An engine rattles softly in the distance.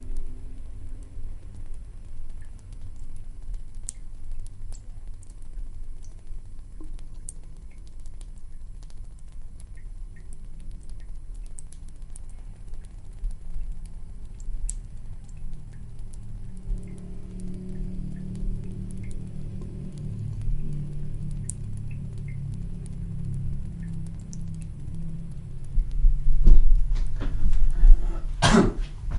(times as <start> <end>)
0.0 3.8, 14.4 29.2